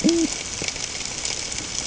{"label": "ambient", "recorder": "HydroMoth"}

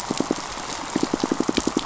{"label": "biophony, pulse", "recorder": "SoundTrap 500"}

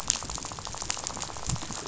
{"label": "biophony, rattle", "recorder": "SoundTrap 500"}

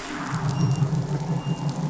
{"label": "anthrophony, boat engine", "recorder": "SoundTrap 500"}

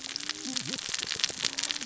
{"label": "biophony, cascading saw", "recorder": "SoundTrap 600 or HydroMoth"}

